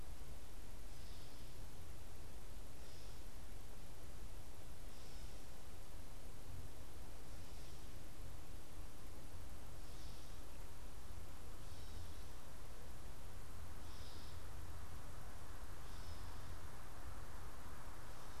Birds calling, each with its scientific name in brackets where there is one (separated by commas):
Gray Catbird (Dumetella carolinensis)